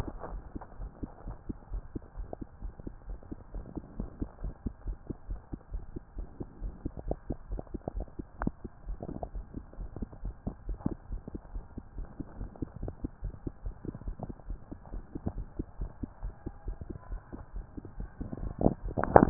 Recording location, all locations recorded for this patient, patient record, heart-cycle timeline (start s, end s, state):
mitral valve (MV)
aortic valve (AV)+pulmonary valve (PV)+tricuspid valve (TV)+mitral valve (MV)
#Age: Child
#Sex: Female
#Height: 138.0 cm
#Weight: 37.1 kg
#Pregnancy status: False
#Murmur: Absent
#Murmur locations: nan
#Most audible location: nan
#Systolic murmur timing: nan
#Systolic murmur shape: nan
#Systolic murmur grading: nan
#Systolic murmur pitch: nan
#Systolic murmur quality: nan
#Diastolic murmur timing: nan
#Diastolic murmur shape: nan
#Diastolic murmur grading: nan
#Diastolic murmur pitch: nan
#Diastolic murmur quality: nan
#Outcome: Normal
#Campaign: 2015 screening campaign
0.00	1.10	unannotated
1.10	1.28	diastole
1.28	1.38	S1
1.38	1.47	systole
1.47	1.56	S2
1.56	1.72	diastole
1.72	1.84	S1
1.84	1.94	systole
1.94	2.02	S2
2.02	2.18	diastole
2.18	2.28	S1
2.28	2.39	systole
2.39	2.45	S2
2.45	2.64	diastole
2.64	2.74	S1
2.74	2.85	systole
2.85	2.94	S2
2.94	3.08	diastole
3.08	3.18	S1
3.18	3.30	systole
3.30	3.38	S2
3.38	3.54	diastole
3.54	3.66	S1
3.66	3.75	systole
3.75	3.84	S2
3.84	3.98	diastole
3.98	4.10	S1
4.10	4.20	systole
4.20	4.30	S2
4.30	4.42	diastole
4.42	4.54	S1
4.54	4.64	systole
4.64	4.74	S2
4.74	4.86	diastole
4.86	4.98	S1
4.98	5.08	systole
5.08	5.16	S2
5.16	5.29	diastole
5.29	5.40	S1
5.40	5.51	systole
5.51	5.58	S2
5.58	5.72	diastole
5.72	5.84	S1
5.84	5.93	systole
5.93	6.02	S2
6.02	6.18	diastole
6.18	6.28	S1
6.28	6.40	systole
6.40	6.48	S2
6.48	6.62	diastole
6.62	6.74	S1
6.74	6.84	systole
6.84	6.94	S2
6.94	7.06	diastole
7.06	7.18	S1
7.18	7.30	systole
7.30	7.38	S2
7.38	7.50	diastole
7.50	7.62	S1
7.62	7.72	systole
7.72	7.80	S2
7.80	7.96	diastole
7.96	8.08	S1
8.08	8.18	systole
8.18	8.26	S2
8.26	8.42	diastole
8.42	8.54	S1
8.54	8.63	systole
8.63	8.72	S2
8.72	8.88	diastole
8.88	8.98	S1
8.98	19.30	unannotated